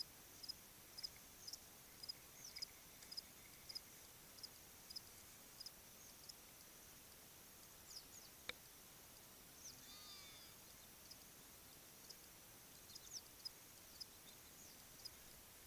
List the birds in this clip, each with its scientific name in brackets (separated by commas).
Hadada Ibis (Bostrychia hagedash)